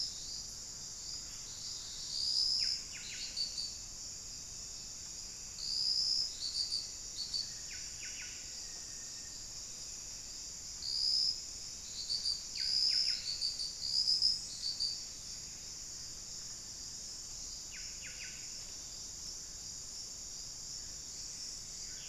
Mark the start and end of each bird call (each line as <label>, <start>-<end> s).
Buff-breasted Wren (Cantorchilus leucotis), 0.0-22.1 s
Black-faced Antthrush (Formicarius analis), 7.5-9.9 s